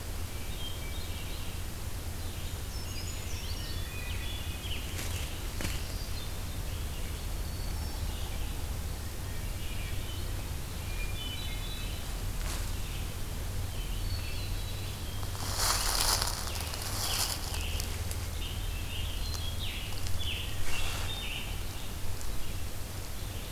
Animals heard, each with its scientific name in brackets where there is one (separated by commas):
Brown Creeper (Certhia americana), Red-eyed Vireo (Vireo olivaceus), Hermit Thrush (Catharus guttatus), Yellow-bellied Sapsucker (Sphyrapicus varius), Scarlet Tanager (Piranga olivacea)